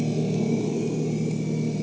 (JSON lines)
{"label": "anthrophony, boat engine", "recorder": "HydroMoth"}